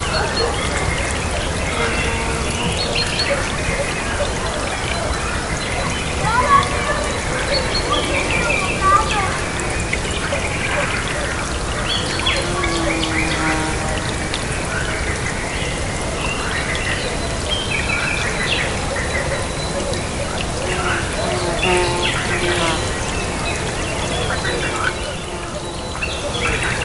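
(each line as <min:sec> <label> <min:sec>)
0:00.0 A bird chirps. 0:06.1
0:06.1 People are talking in the distance. 0:09.8
0:11.9 A bird chirps. 0:14.9
0:13.4 Bees are humming. 0:14.2
0:15.2 Birds are chirping in the background. 0:26.8
0:21.5 Bees are flying. 0:23.0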